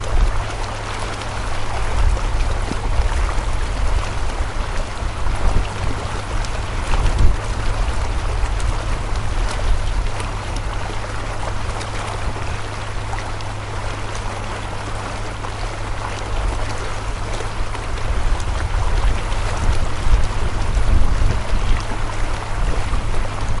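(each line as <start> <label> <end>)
0.0 Strong wind blowing. 0.5
0.0 Quiet humming of a boat engine. 23.6
0.0 Water is running and splashing against a boat's hull. 23.6
1.8 Strong wind blowing. 10.4
18.1 Strong wind blowing. 23.6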